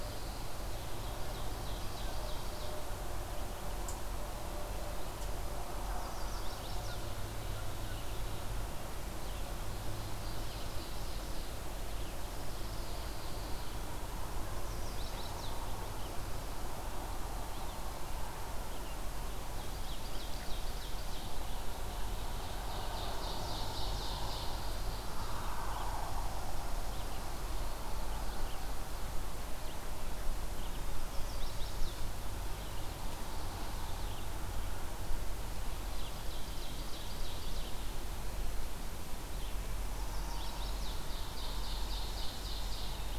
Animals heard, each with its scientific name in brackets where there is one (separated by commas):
Pine Warbler (Setophaga pinus), Chestnut-sided Warbler (Setophaga pensylvanica), Ovenbird (Seiurus aurocapilla), Red-eyed Vireo (Vireo olivaceus)